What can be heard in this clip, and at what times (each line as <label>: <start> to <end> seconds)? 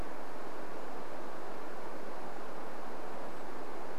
Brown Creeper call: 0 to 4 seconds